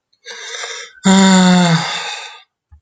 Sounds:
Sigh